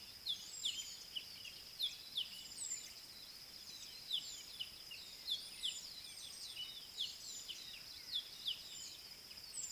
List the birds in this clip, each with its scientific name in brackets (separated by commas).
Southern Black-Flycatcher (Melaenornis pammelaina)